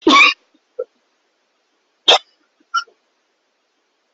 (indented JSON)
{
  "expert_labels": [
    {
      "quality": "poor",
      "cough_type": "unknown",
      "dyspnea": false,
      "wheezing": true,
      "stridor": false,
      "choking": false,
      "congestion": false,
      "nothing": false,
      "diagnosis": "obstructive lung disease",
      "severity": "unknown"
    },
    {
      "quality": "poor",
      "cough_type": "unknown",
      "dyspnea": false,
      "wheezing": false,
      "stridor": false,
      "choking": false,
      "congestion": false,
      "nothing": true,
      "diagnosis": "COVID-19",
      "severity": "unknown"
    },
    {
      "quality": "poor",
      "cough_type": "unknown",
      "dyspnea": false,
      "wheezing": false,
      "stridor": false,
      "choking": false,
      "congestion": false,
      "nothing": false,
      "severity": "unknown"
    },
    {
      "quality": "poor",
      "cough_type": "unknown",
      "dyspnea": false,
      "wheezing": false,
      "stridor": false,
      "choking": false,
      "congestion": false,
      "nothing": false,
      "severity": "unknown"
    }
  ],
  "age": 30,
  "gender": "male",
  "respiratory_condition": true,
  "fever_muscle_pain": false,
  "status": "symptomatic"
}